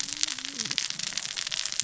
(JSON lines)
{"label": "biophony, cascading saw", "recorder": "SoundTrap 600 or HydroMoth"}